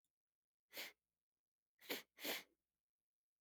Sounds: Sniff